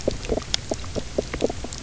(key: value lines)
label: biophony, knock croak
recorder: SoundTrap 300